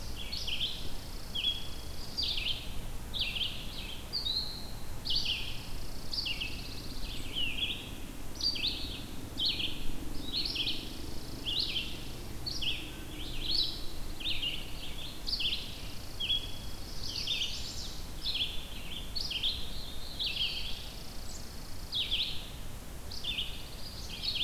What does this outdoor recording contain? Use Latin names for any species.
Vireo olivaceus, Spizella passerina, Setophaga pinus, Chaetura pelagica, Setophaga caerulescens